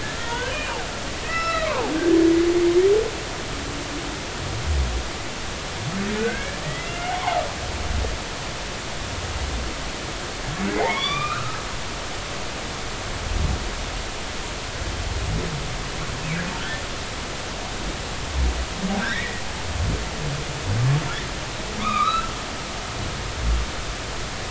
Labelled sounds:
0.1	0.8	humpback whale, 1.3 to 3.5 kHz
1.2	1.9	humpback whale, 0.80 to 5.4 kHz
6.2	7.4	humpback whale, 0.80 to 2.4 kHz
10.7	12.2	humpback whale, 1.0 to 6.0 kHz
19.0	19.4	humpback whale, 1.3 to 2.0 kHz
21.8	22.3	humpback whale, 0.99 to 2.6 kHz

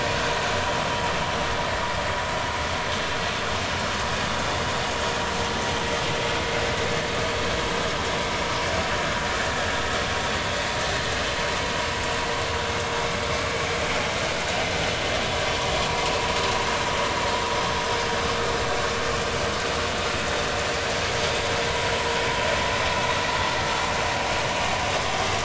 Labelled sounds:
15.9	16.1	vessel noise, 0.90 to 1.1 kHz

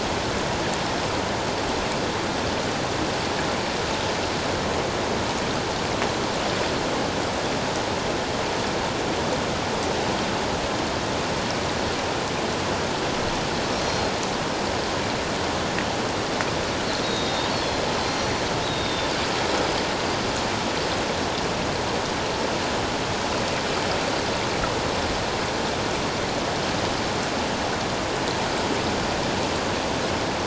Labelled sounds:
13.8	14.1	Pacific white-sided dolphin, 4.1 to 4.3 kHz
16.8	19.1	Pacific white-sided dolphin, 3.4 to 5.9 kHz

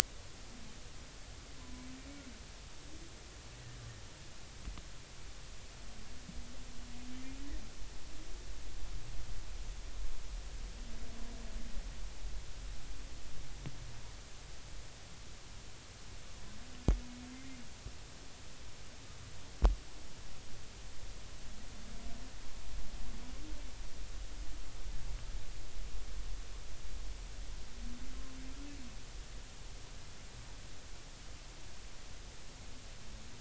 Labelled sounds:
1.6	1.9	humpback whale, 0.96 to 1.1 kHz
17.3	17.6	humpback whale, 2.0 to 2.2 kHz

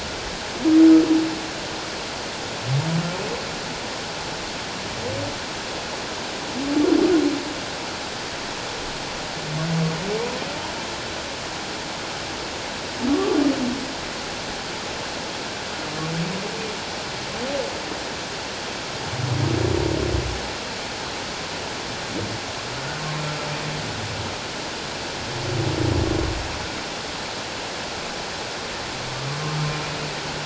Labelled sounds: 13.1	13.4	humpback whale, 1.1 to 1.2 kHz

